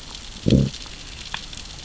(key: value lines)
label: biophony, growl
recorder: SoundTrap 600 or HydroMoth